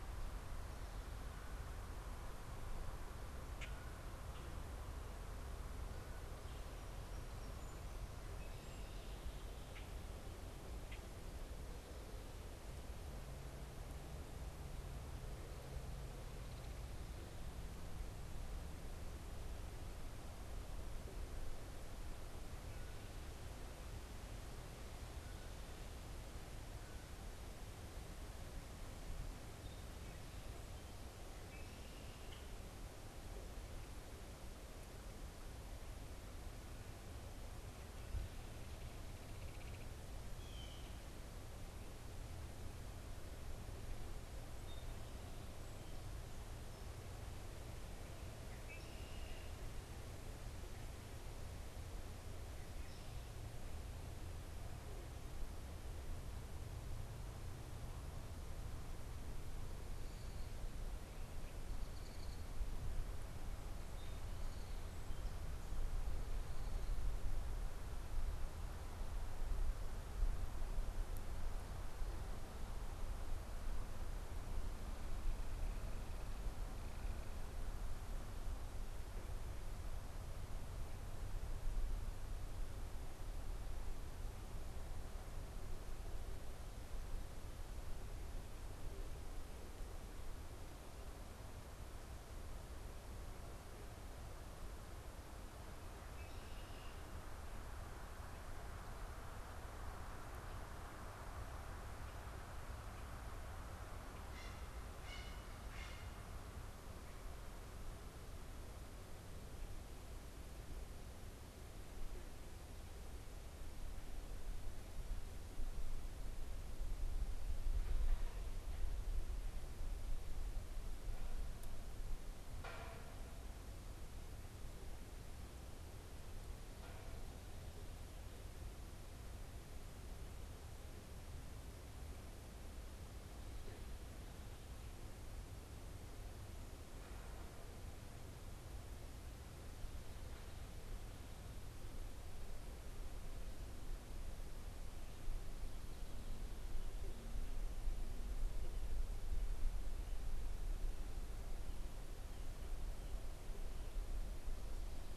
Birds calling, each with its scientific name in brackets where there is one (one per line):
Blue Jay (Cyanocitta cristata)
Red-winged Blackbird (Agelaius phoeniceus)
Common Grackle (Quiscalus quiscula)
Great Blue Heron (Ardea herodias)
Belted Kingfisher (Megaceryle alcyon)